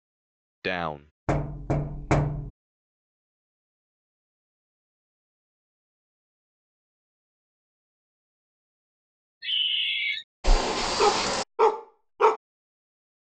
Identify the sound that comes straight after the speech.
knock